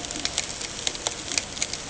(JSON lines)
{"label": "ambient", "recorder": "HydroMoth"}